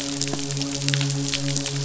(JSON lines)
{"label": "biophony, midshipman", "recorder": "SoundTrap 500"}